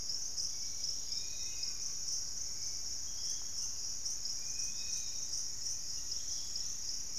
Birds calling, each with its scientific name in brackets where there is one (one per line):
Dusky-capped Flycatcher (Myiarchus tuberculifer)
Piratic Flycatcher (Legatus leucophaius)
unidentified bird
Fasciated Antshrike (Cymbilaimus lineatus)
Dusky-capped Greenlet (Pachysylvia hypoxantha)
Hauxwell's Thrush (Turdus hauxwelli)